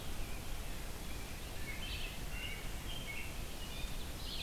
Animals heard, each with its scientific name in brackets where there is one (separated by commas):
Red-eyed Vireo (Vireo olivaceus), American Robin (Turdus migratorius)